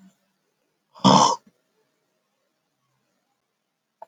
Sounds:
Throat clearing